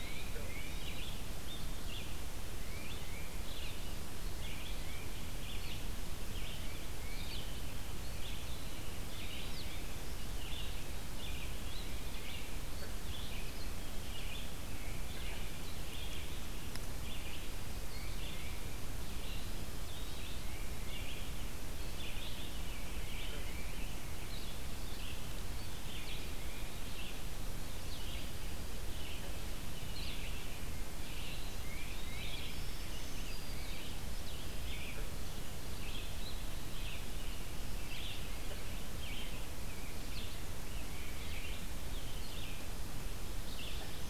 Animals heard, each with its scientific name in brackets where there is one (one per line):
Eastern Wood-Pewee (Contopus virens)
Black-throated Green Warbler (Setophaga virens)
Blue-headed Vireo (Vireo solitarius)
Red-eyed Vireo (Vireo olivaceus)
Tufted Titmouse (Baeolophus bicolor)